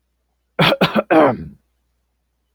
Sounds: Throat clearing